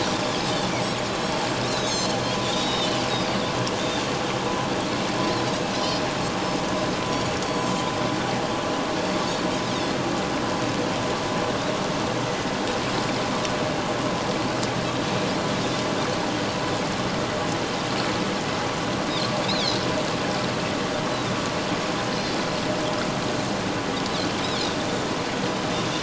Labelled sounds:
1.7	3.0	Pacific white-sided dolphin, 2.8 to 7.6 kHz
7.4	7.7	Pacific white-sided dolphin, 7.3 to 7.9 kHz
19.5	19.7	Pacific white-sided dolphin, 3.0 to 4.2 kHz
21.1	21.4	Pacific white-sided dolphin, 3.5 to 4.0 kHz

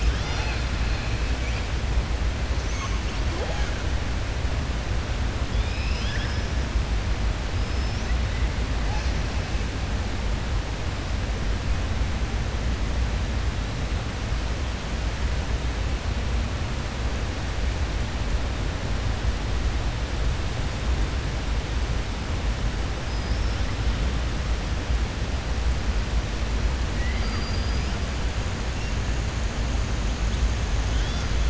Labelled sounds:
5.5	6.5	killer whale, southern resident, 1.6 to 6.0 kHz
26.9	27.9	killer whale, southern resident, 1.2 to 5.4 kHz

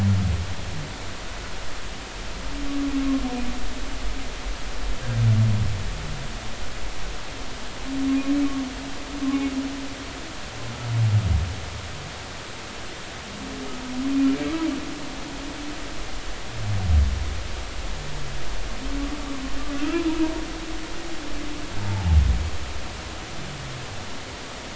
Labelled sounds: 21.8	22.1	humpback whale, 0.80 to 0.93 kHz

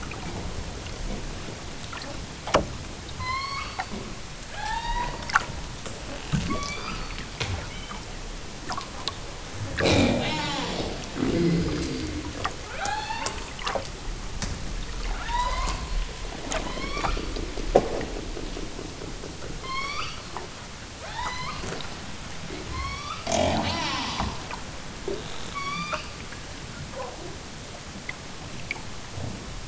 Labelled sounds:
3.1	3.9	killer whale, southern Alaska resident, 0.69 to 6.4 kHz
4.5	5.2	killer whale, southern Alaska resident, 0.50 to 6.3 kHz
6.4	7.2	killer whale, southern Alaska resident, 0.87 to 7.0 kHz
7.5	8.1	killer whale, southern Alaska resident, 0.69 to 3.4 kHz
9.7	12.2	killer whale, southern Alaska resident, 0 to 7.3 kHz
12.7	13.5	killer whale, southern Alaska resident, 0.41 to 5.1 kHz
15.2	15.9	killer whale, southern Alaska resident, 0.64 to 5.8 kHz
16.5	17.2	killer whale, southern Alaska resident, 0.64 to 6.2 kHz
19.6	20.3	killer whale, southern Alaska resident, 0.78 to 7.4 kHz
21.0	21.7	killer whale, southern Alaska resident, 0.28 to 7.4 kHz
22.6	23.3	killer whale, southern Alaska resident, 0.73 to 7.3 kHz
25.4	26.1	killer whale, southern Alaska resident, 0.78 to 8.0 kHz

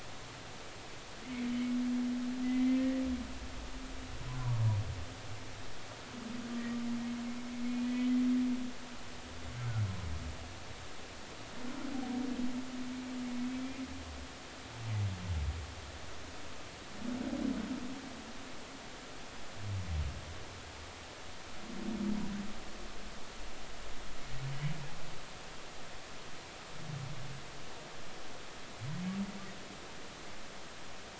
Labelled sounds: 2.4	2.8	humpback whale, 2.0 to 2.1 kHz
13.5	13.8	humpback whale, 2.3 to 2.5 kHz

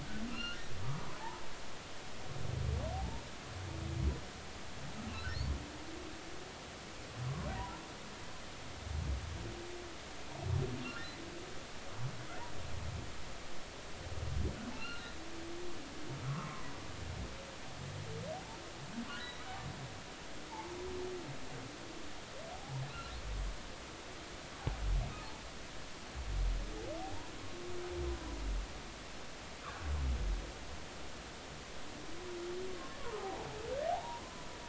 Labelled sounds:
0.3	0.6	humpback whale, 1.2 to 3.0 kHz
2.9	3.2	humpback whale, 0.80 to 0.99 kHz
7.5	7.8	humpback whale, 0.90 to 1.1 kHz
10.8	11.1	humpback whale, 1.3 to 2.8 kHz
14.7	15.1	humpback whale, 1.2 to 2.9 kHz
16.3	16.8	humpback whale, 0.93 to 1.4 kHz
19.0	19.4	humpback whale, 1.4 to 4.1 kHz
20.5	20.8	humpback whale, 0.80 to 1.1 kHz
22.5	22.8	humpback whale, 0.80 to 0.99 kHz
27.0	27.3	humpback whale, 0.80 to 1.0 kHz
32.7	34.4	humpback whale, 0.80 to 1.2 kHz

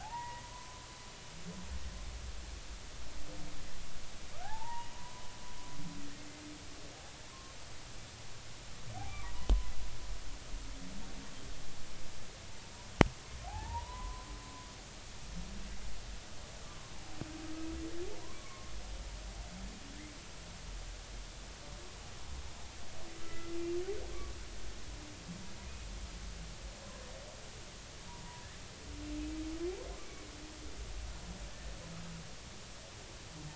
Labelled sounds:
0.0	0.8	humpback whale, 0.80 to 2.0 kHz
4.4	5.3	humpback whale, 0.80 to 2.9 kHz
9.2	9.7	humpback whale, 0.90 to 3.1 kHz
13.5	14.3	humpback whale, 0.80 to 1.1 kHz
18.2	18.7	humpback whale, 0.93 to 1.2 kHz
23.2	23.6	humpback whale, 1.2 to 2.0 kHz
28.1	28.5	humpback whale, 0.90 to 1.0 kHz

